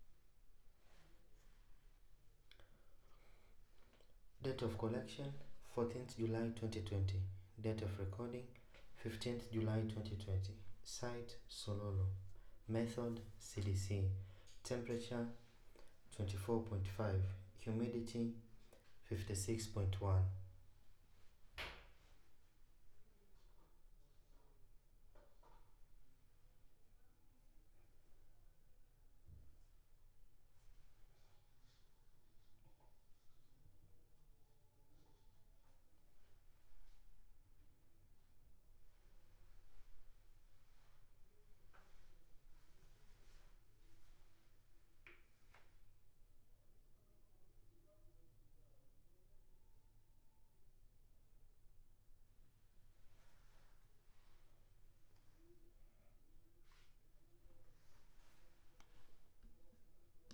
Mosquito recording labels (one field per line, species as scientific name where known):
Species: no mosquito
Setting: cup